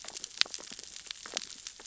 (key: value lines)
label: biophony, sea urchins (Echinidae)
recorder: SoundTrap 600 or HydroMoth